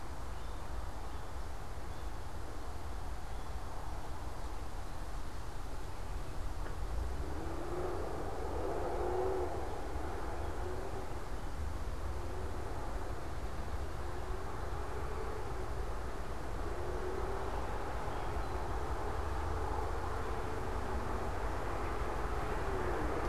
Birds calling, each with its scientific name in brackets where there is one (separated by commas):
unidentified bird